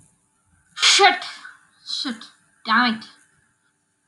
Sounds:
Sigh